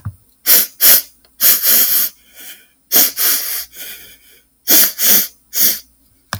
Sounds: Sniff